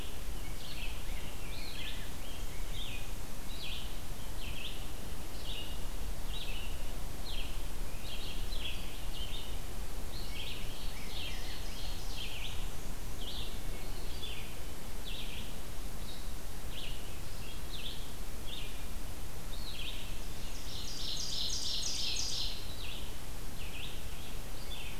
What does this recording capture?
Red-eyed Vireo, Rose-breasted Grosbeak, Ovenbird, Black-and-white Warbler